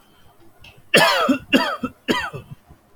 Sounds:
Cough